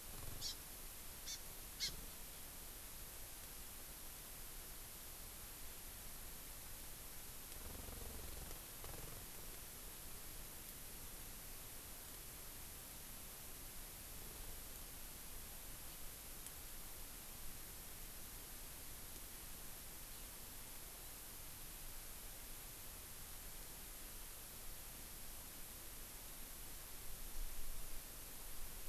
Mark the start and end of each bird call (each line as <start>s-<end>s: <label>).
0.3s-0.5s: Hawaii Amakihi (Chlorodrepanis virens)
1.2s-1.3s: Hawaii Amakihi (Chlorodrepanis virens)
1.7s-1.9s: Hawaii Amakihi (Chlorodrepanis virens)